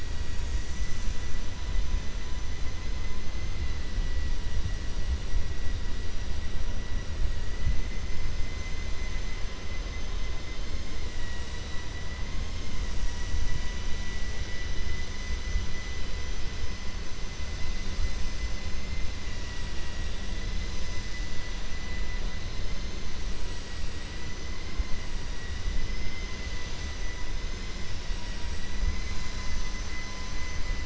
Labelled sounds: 19.2	20.1	vessel noise, 0.97 to 3.0 kHz

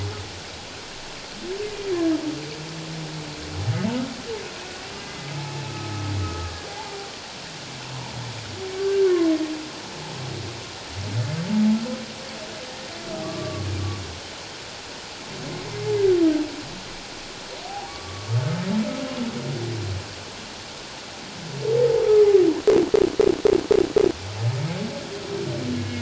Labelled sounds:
5.0	7.1	humpback whale, 0.78 to 2.1 kHz
8.8	9.1	humpback whale, 1.4 to 1.6 kHz
13.2	13.7	humpback whale, 1.1 to 1.2 kHz
17.6	18.3	humpback whale, 0.78 to 1.2 kHz
25.8	26.0	humpback whale, 1.6 to 1.7 kHz

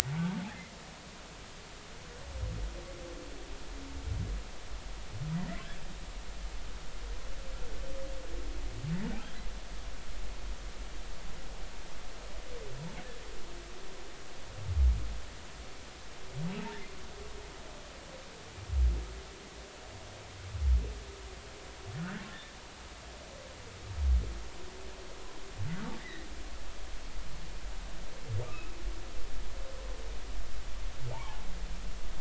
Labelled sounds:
5.3	5.6	humpback whale, 1.8 to 2.1 kHz
22.0	22.2	humpback whale, 1.4 to 2.0 kHz
26.0	26.3	humpback whale, 1.7 to 2.1 kHz
28.4	28.7	humpback whale, 2.3 to 2.7 kHz
31.1	31.4	humpback whale, 0.80 to 1.2 kHz

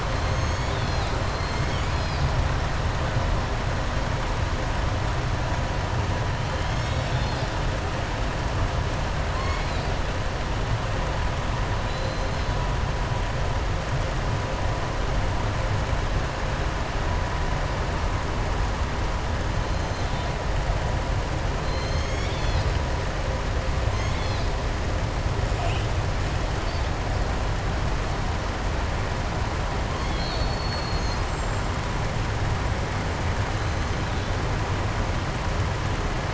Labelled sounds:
0.1	1.2	killer whale, southern resident, 2.6 to 7.5 kHz
9.3	9.9	killer whale, southern resident, 1.0 to 5.3 kHz
11.8	12.5	killer whale, southern resident, 3.0 to 5.1 kHz
21.6	22.7	killer whale, southern resident, 2.2 to 7.3 kHz

